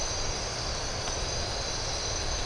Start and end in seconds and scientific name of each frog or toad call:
none